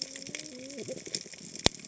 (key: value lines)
label: biophony, cascading saw
recorder: HydroMoth